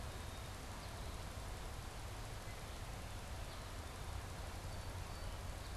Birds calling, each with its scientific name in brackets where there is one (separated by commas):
Black-capped Chickadee (Poecile atricapillus)